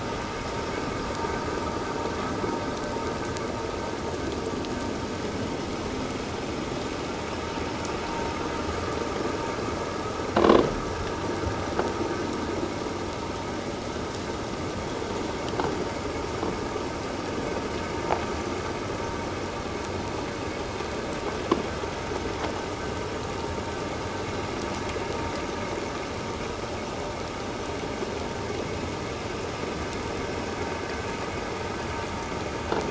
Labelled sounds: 10.4	10.6	croaking sound likely from a nearby submerged object, 0.97 to 1.2 kHz

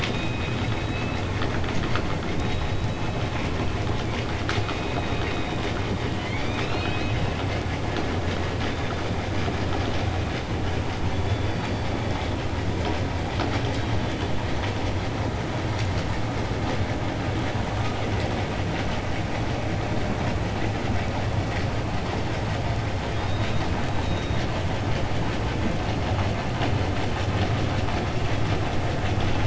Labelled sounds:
6.1	7.5	killer whale, 1.2 to 6.7 kHz
23.1	23.7	killer whale, 2.2 to 5.8 kHz

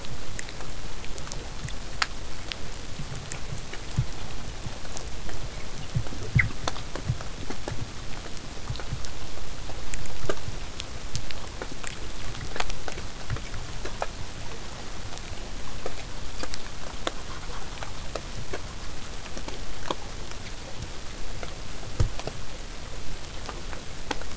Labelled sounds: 17.0	22.0	vessel noise, 0 to 8.0 kHz

